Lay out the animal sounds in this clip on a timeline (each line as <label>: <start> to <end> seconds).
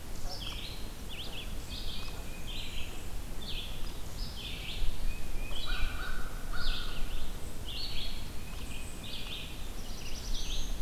Red-eyed Vireo (Vireo olivaceus): 0.0 to 10.7 seconds
Tufted Titmouse (Baeolophus bicolor): 1.6 to 2.9 seconds
Tufted Titmouse (Baeolophus bicolor): 4.9 to 6.0 seconds
American Crow (Corvus brachyrhynchos): 5.4 to 7.0 seconds
Tufted Titmouse (Baeolophus bicolor): 8.3 to 9.3 seconds
Black-throated Blue Warbler (Setophaga caerulescens): 9.6 to 10.8 seconds